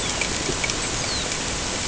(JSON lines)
{"label": "ambient", "recorder": "HydroMoth"}